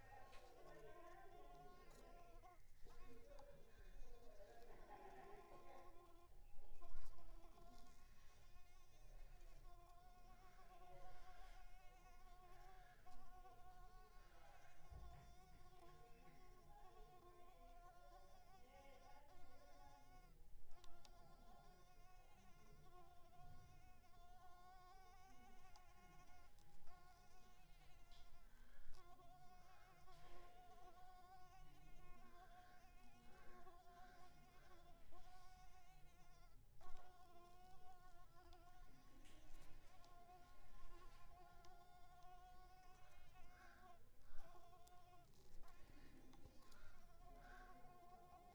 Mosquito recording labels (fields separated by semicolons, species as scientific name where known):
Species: Mansonia uniformis; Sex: female; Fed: unfed; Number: one; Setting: cup